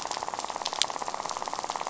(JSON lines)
{"label": "biophony, rattle", "recorder": "SoundTrap 500"}